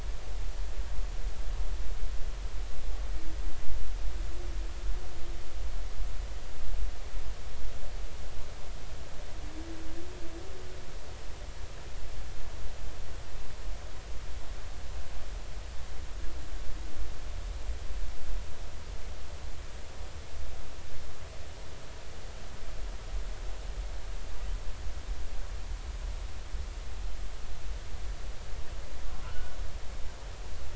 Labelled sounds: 29.2	29.6	humpback whale, 1.3 to 1.5 kHz

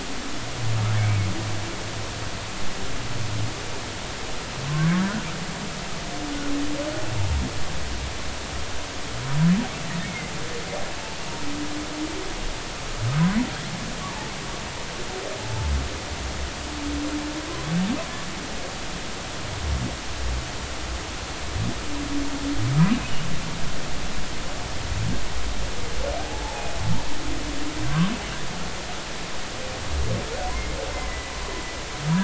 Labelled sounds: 1.0	1.3	humpback whale, 2.1 to 2.6 kHz
10.0	10.3	humpback whale, 2.0 to 2.3 kHz
15.4	15.7	humpback whale, 0.83 to 0.93 kHz
22.8	23.1	humpback whale, 2.4 to 2.6 kHz
26.1	26.7	humpback whale, 0.80 to 0.96 kHz
27.8	28.1	humpback whale, 1.5 to 1.6 kHz
30.9	31.3	humpback whale, 2.0 to 2.1 kHz

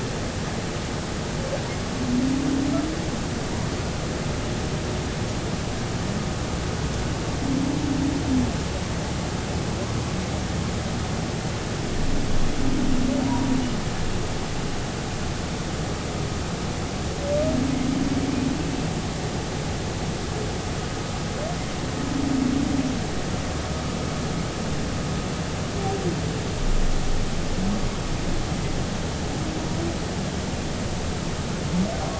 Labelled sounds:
13.2	13.5	humpback whale, 0.90 to 1.0 kHz

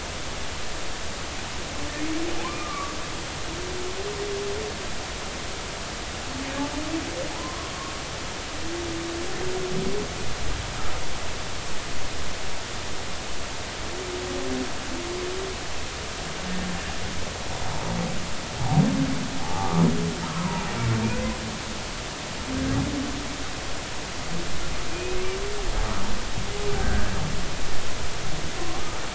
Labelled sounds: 2.6	3.0	humpback whale, 1.1 to 1.3 kHz
7.3	7.7	humpback whale, 0.80 to 1.2 kHz
18.6	18.8	humpback whale, 0.80 to 0.96 kHz
19.4	19.8	humpback whale, 0.80 to 1.2 kHz
20.3	20.6	humpback whale, 0.86 to 1.2 kHz
24.9	25.2	humpback whale, 2.4 to 2.6 kHz
26.7	27.1	humpback whale, 1.4 to 1.7 kHz

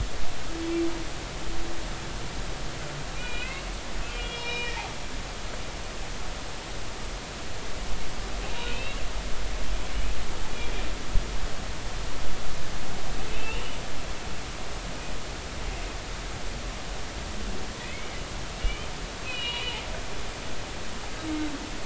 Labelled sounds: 3.2	4.8	humpback whale, 2.3 to 5.4 kHz
8.6	9.0	humpback whale, 2.3 to 3.1 kHz
13.3	13.8	humpback whale, 2.5 to 3.0 kHz
17.8	18.1	humpback whale, 1.9 to 2.3 kHz
18.6	18.9	humpback whale, 2.2 to 3.2 kHz
19.3	19.8	humpback whale, 2.3 to 4.1 kHz

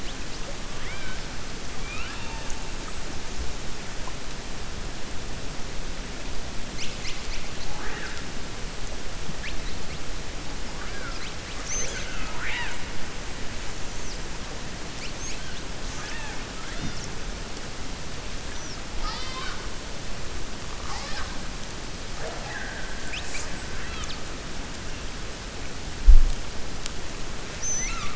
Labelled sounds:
0.7	1.2	killer whale, 1.0 to 3.9 kHz
1.7	2.5	killer whale, 0.90 to 4.5 kHz

